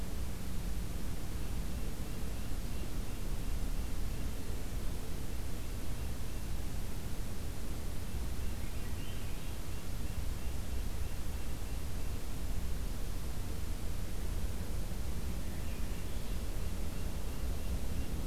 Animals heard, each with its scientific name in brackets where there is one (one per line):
Swainson's Thrush (Catharus ustulatus)
Red-breasted Nuthatch (Sitta canadensis)